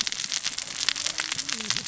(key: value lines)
label: biophony, cascading saw
recorder: SoundTrap 600 or HydroMoth